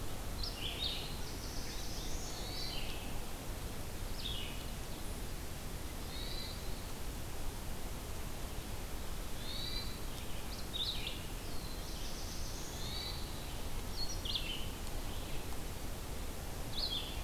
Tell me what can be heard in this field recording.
Red-eyed Vireo, Black-throated Blue Warbler, Hermit Thrush